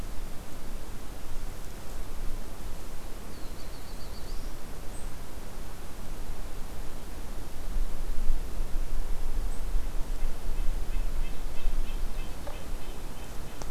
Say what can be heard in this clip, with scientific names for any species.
Setophaga caerulescens, Sitta canadensis